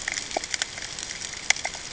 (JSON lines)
{"label": "ambient", "recorder": "HydroMoth"}